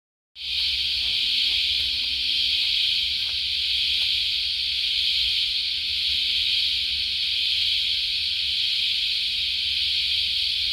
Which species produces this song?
Psaltoda moerens